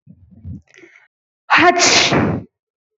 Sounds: Sneeze